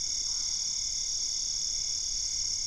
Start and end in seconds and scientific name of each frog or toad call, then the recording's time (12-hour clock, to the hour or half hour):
0.0	1.1	Boana albopunctata
~9pm